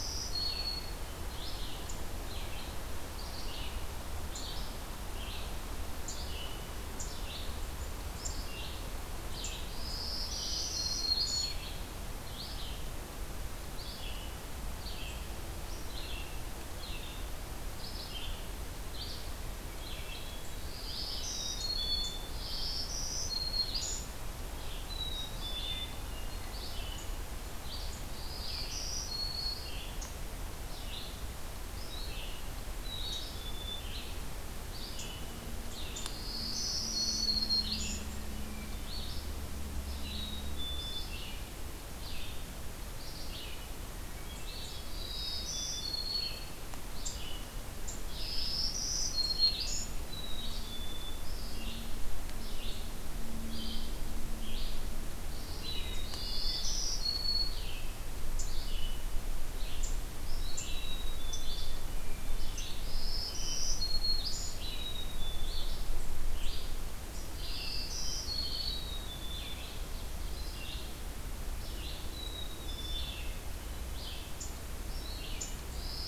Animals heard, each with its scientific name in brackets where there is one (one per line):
Red-eyed Vireo (Vireo olivaceus)
Hermit Thrush (Catharus guttatus)
Black-capped Chickadee (Poecile atricapillus)
Black-throated Green Warbler (Setophaga virens)
Ovenbird (Seiurus aurocapilla)